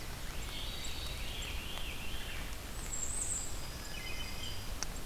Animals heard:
Bay-breasted Warbler (Setophaga castanea), Wood Thrush (Hylocichla mustelina), unknown mammal, Yellow-rumped Warbler (Setophaga coronata), Veery (Catharus fuscescens)

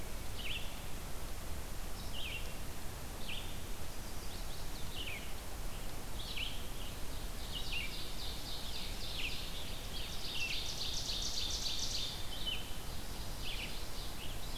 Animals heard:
Ovenbird (Seiurus aurocapilla), Red-eyed Vireo (Vireo olivaceus), Chestnut-sided Warbler (Setophaga pensylvanica)

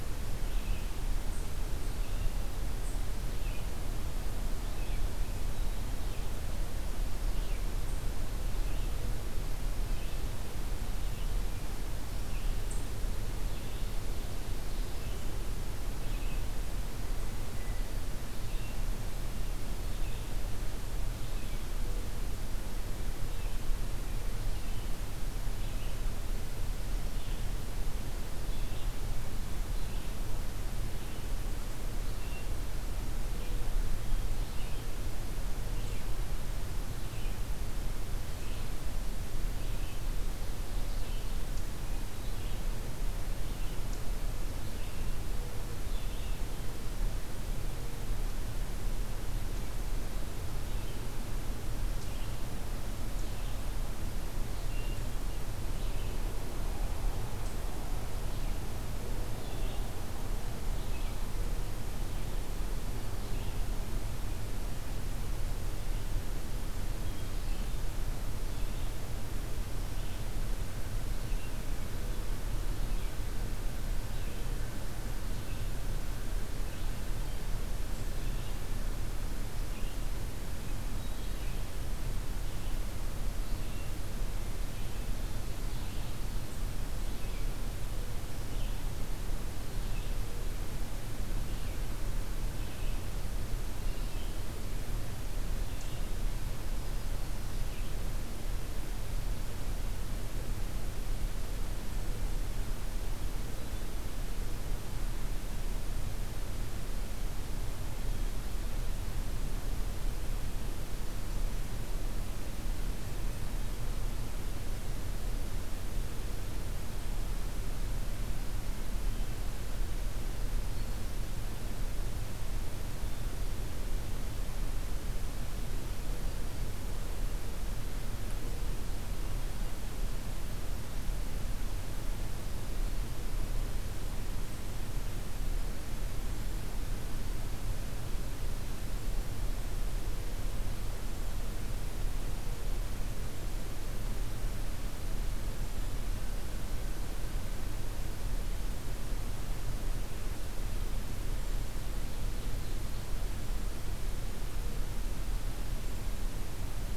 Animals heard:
Ovenbird (Seiurus aurocapilla), Red-eyed Vireo (Vireo olivaceus)

